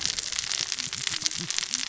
{"label": "biophony, cascading saw", "recorder": "SoundTrap 600 or HydroMoth"}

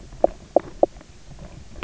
{"label": "biophony, knock croak", "recorder": "SoundTrap 300"}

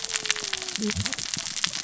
{"label": "biophony, cascading saw", "recorder": "SoundTrap 600 or HydroMoth"}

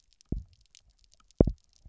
{"label": "biophony, double pulse", "recorder": "SoundTrap 300"}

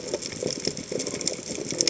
{"label": "biophony", "recorder": "HydroMoth"}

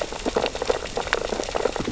{"label": "biophony, sea urchins (Echinidae)", "recorder": "SoundTrap 600 or HydroMoth"}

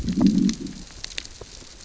{"label": "biophony, growl", "recorder": "SoundTrap 600 or HydroMoth"}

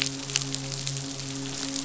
{"label": "biophony, midshipman", "recorder": "SoundTrap 500"}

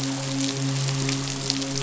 {"label": "biophony, midshipman", "recorder": "SoundTrap 500"}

